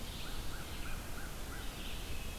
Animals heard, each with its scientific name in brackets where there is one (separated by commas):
Red-eyed Vireo (Vireo olivaceus), American Crow (Corvus brachyrhynchos)